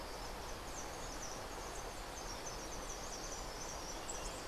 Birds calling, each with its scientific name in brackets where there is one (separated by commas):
White-eared Ground-Sparrow (Melozone leucotis)